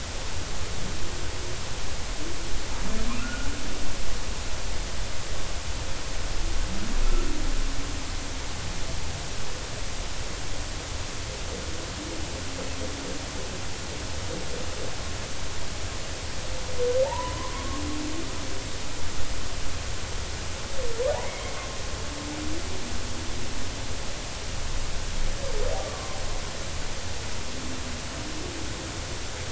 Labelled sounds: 3.2	3.5	humpback whale, 1.1 to 1.5 kHz
17.0	17.7	humpback whale, 0.80 to 1.1 kHz
25.8	26.2	humpback whale, 0.99 to 1.2 kHz

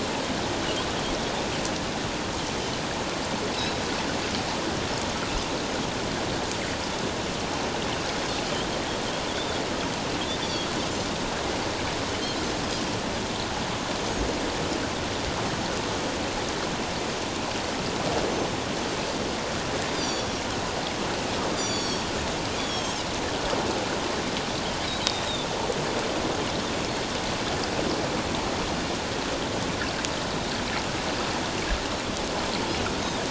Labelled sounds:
9.3	10.7	Pacific white-sided dolphin, 3.2 to 4.8 kHz
19.9	20.4	Pacific white-sided dolphin, 3.3 to 5.8 kHz
21.5	22.1	Pacific white-sided dolphin, 3.2 to 7.3 kHz
22.6	23.0	Pacific white-sided dolphin, 3.1 to 3.5 kHz

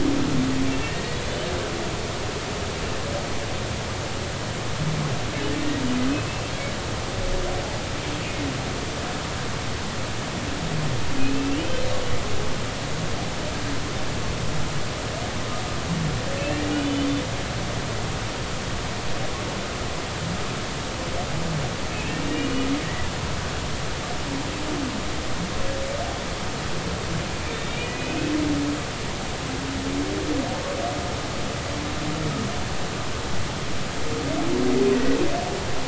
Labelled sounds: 0.7	1.0	humpback whale, 1.8 to 1.9 kHz
6.3	6.5	humpback whale, 2.6 to 2.7 kHz
16.7	17.1	humpback whale, 2.8 to 3.6 kHz
21.9	22.5	humpback whale, 2.4 to 2.9 kHz
27.3	28.2	humpback whale, 2.2 to 3.0 kHz
28.5	28.9	humpback whale, 3.6 to 3.8 kHz
34.9	35.2	humpback whale, 1.8 to 2.0 kHz

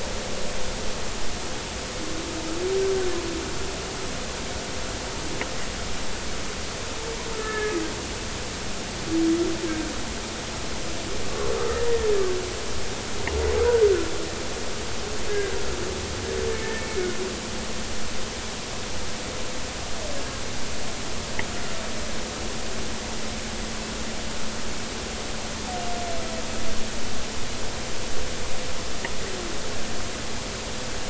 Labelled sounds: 7.3	7.7	humpback whale, 1.2 to 1.8 kHz
13.6	13.8	humpback whale, 1.2 to 1.6 kHz
15.3	15.5	humpback whale, 1.5 to 1.7 kHz
16.6	16.9	humpback whale, 1.7 to 1.9 kHz

